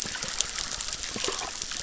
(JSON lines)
{"label": "biophony, chorus", "recorder": "SoundTrap 600"}